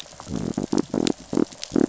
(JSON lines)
{"label": "biophony", "recorder": "SoundTrap 500"}